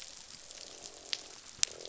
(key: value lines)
label: biophony, croak
recorder: SoundTrap 500